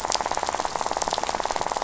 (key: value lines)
label: biophony, rattle
recorder: SoundTrap 500